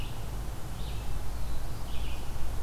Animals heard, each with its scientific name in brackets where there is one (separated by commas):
Red-eyed Vireo (Vireo olivaceus)